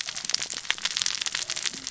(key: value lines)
label: biophony, cascading saw
recorder: SoundTrap 600 or HydroMoth